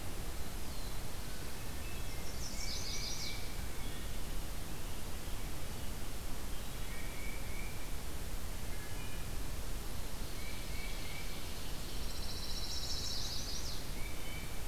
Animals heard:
Wood Thrush (Hylocichla mustelina), Chestnut-sided Warbler (Setophaga pensylvanica), Pine Warbler (Setophaga pinus), Tufted Titmouse (Baeolophus bicolor), Black-throated Blue Warbler (Setophaga caerulescens), Ovenbird (Seiurus aurocapilla)

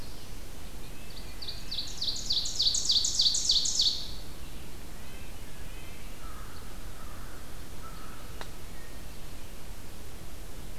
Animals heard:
Ovenbird (Seiurus aurocapilla), Red-breasted Nuthatch (Sitta canadensis), American Crow (Corvus brachyrhynchos)

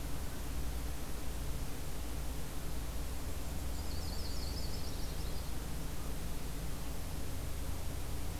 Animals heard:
Black-and-white Warbler (Mniotilta varia), Yellow-rumped Warbler (Setophaga coronata)

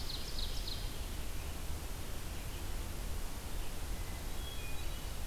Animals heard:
Red-eyed Vireo (Vireo olivaceus), Ovenbird (Seiurus aurocapilla), Hermit Thrush (Catharus guttatus)

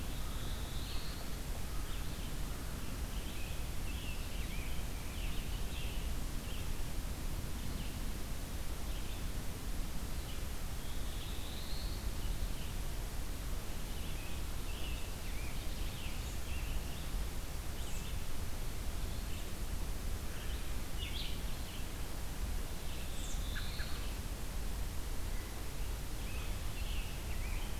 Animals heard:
Black-throated Blue Warbler (Setophaga caerulescens), Red-eyed Vireo (Vireo olivaceus), American Robin (Turdus migratorius), Scarlet Tanager (Piranga olivacea)

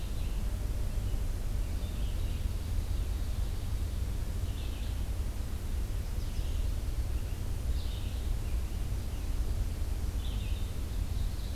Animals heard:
American Redstart (Setophaga ruticilla), Red-eyed Vireo (Vireo olivaceus), Ovenbird (Seiurus aurocapilla)

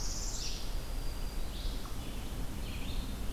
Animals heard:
Northern Parula (Setophaga americana), unknown mammal, Black-throated Green Warbler (Setophaga virens), Red-eyed Vireo (Vireo olivaceus)

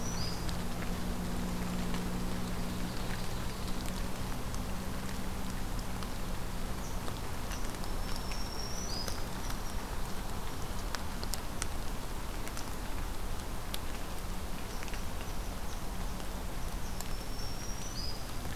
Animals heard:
Red Squirrel (Tamiasciurus hudsonicus), Ovenbird (Seiurus aurocapilla), Black-throated Green Warbler (Setophaga virens)

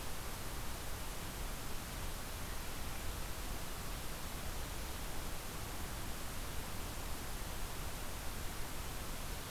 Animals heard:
Ovenbird (Seiurus aurocapilla)

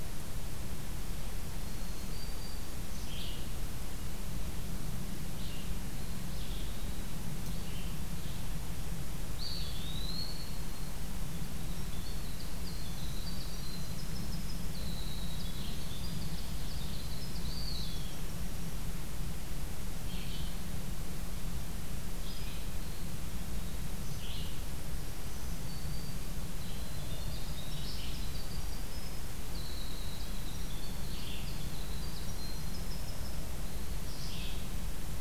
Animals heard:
Red-eyed Vireo (Vireo olivaceus), Winter Wren (Troglodytes hiemalis), Black-throated Green Warbler (Setophaga virens), Eastern Wood-Pewee (Contopus virens)

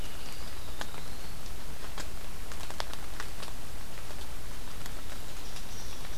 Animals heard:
Eastern Wood-Pewee (Contopus virens)

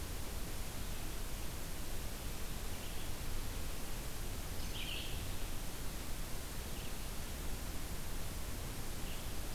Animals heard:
Red-eyed Vireo (Vireo olivaceus)

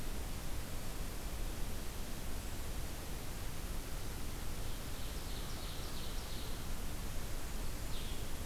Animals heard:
Blue-headed Vireo (Vireo solitarius), Ovenbird (Seiurus aurocapilla)

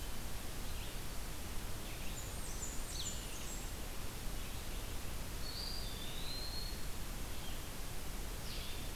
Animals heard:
Blue-headed Vireo (Vireo solitarius), Eastern Wood-Pewee (Contopus virens), Blackburnian Warbler (Setophaga fusca), Red-eyed Vireo (Vireo olivaceus)

